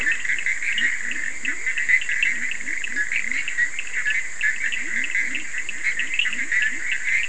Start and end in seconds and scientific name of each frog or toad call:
0.0	7.2	Boana bischoffi
0.0	7.2	Sphaenorhynchus surdus
0.6	7.2	Leptodactylus latrans